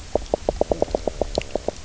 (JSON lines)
{"label": "biophony, knock croak", "recorder": "SoundTrap 300"}